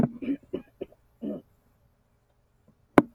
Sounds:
Throat clearing